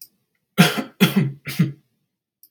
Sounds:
Cough